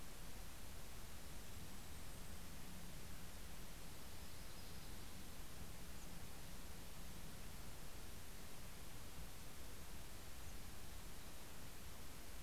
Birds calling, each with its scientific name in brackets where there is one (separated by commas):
Yellow-rumped Warbler (Setophaga coronata), Golden-crowned Kinglet (Regulus satrapa)